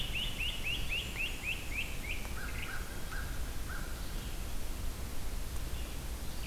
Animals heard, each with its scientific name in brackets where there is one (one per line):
Great Crested Flycatcher (Myiarchus crinitus)
Blackburnian Warbler (Setophaga fusca)
Red-eyed Vireo (Vireo olivaceus)
American Crow (Corvus brachyrhynchos)